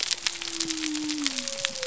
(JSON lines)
{"label": "biophony", "recorder": "SoundTrap 300"}